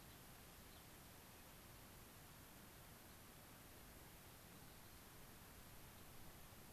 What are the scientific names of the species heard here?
Leucosticte tephrocotis